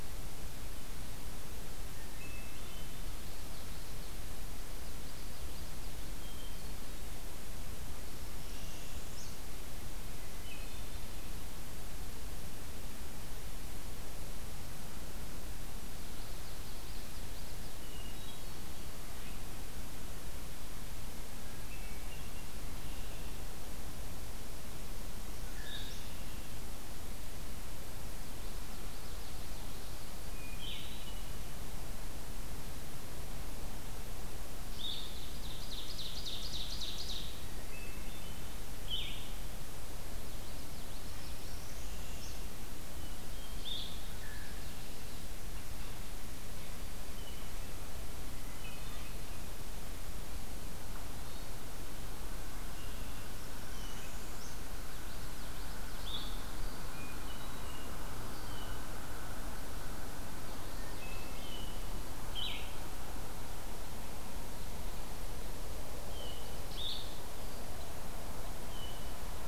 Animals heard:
Hermit Thrush (Catharus guttatus), Red-winged Blackbird (Agelaius phoeniceus), Common Yellowthroat (Geothlypis trichas), Ovenbird (Seiurus aurocapilla), Northern Parula (Setophaga americana), Blue-headed Vireo (Vireo solitarius)

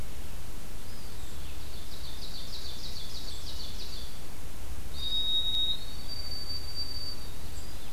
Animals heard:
Ovenbird (Seiurus aurocapilla), White-throated Sparrow (Zonotrichia albicollis), Eastern Wood-Pewee (Contopus virens)

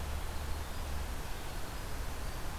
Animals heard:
Winter Wren (Troglodytes hiemalis)

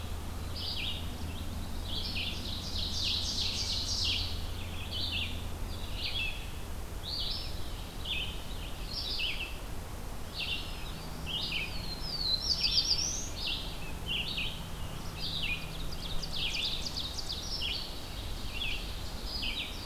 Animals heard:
Red-eyed Vireo (Vireo olivaceus), Ovenbird (Seiurus aurocapilla), Black-throated Blue Warbler (Setophaga caerulescens), Rose-breasted Grosbeak (Pheucticus ludovicianus), Black-throated Green Warbler (Setophaga virens)

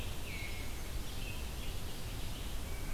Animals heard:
Red-eyed Vireo (Vireo olivaceus)

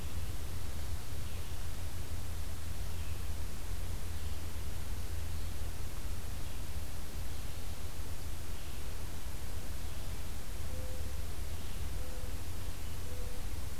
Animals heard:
Red-eyed Vireo (Vireo olivaceus), Mourning Dove (Zenaida macroura)

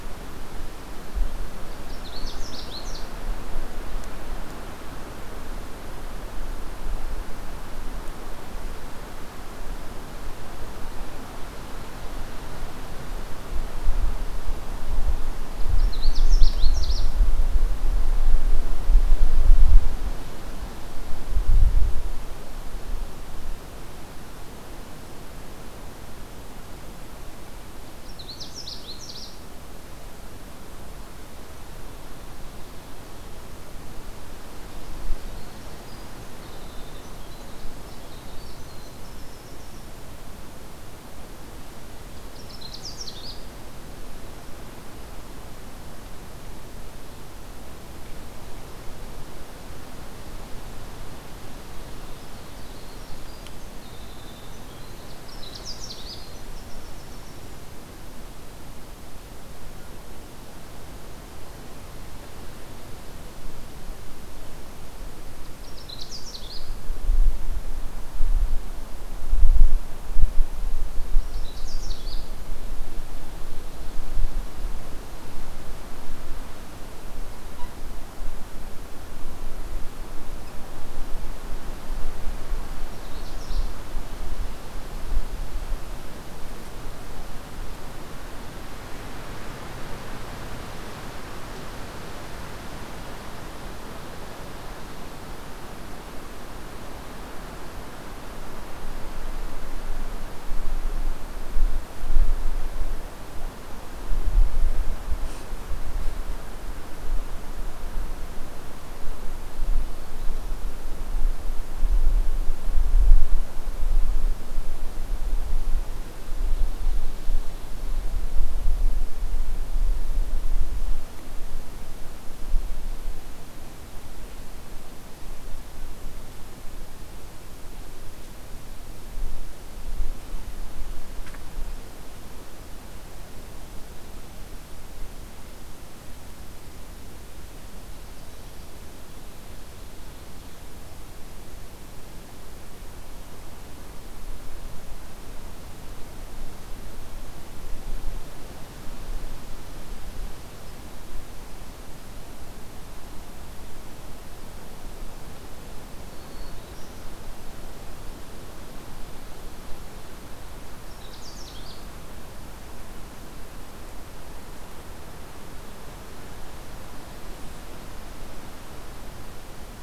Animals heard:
Winter Wren (Troglodytes hiemalis), Canada Warbler (Cardellina canadensis), Black-throated Green Warbler (Setophaga virens)

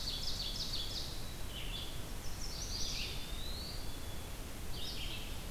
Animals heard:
Eastern Wood-Pewee (Contopus virens), Red-eyed Vireo (Vireo olivaceus), Chestnut-sided Warbler (Setophaga pensylvanica), Ovenbird (Seiurus aurocapilla)

